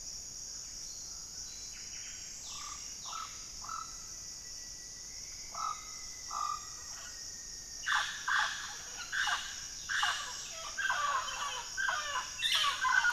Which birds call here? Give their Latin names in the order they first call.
Amazona farinosa, Cantorchilus leucotis, Formicarius rufifrons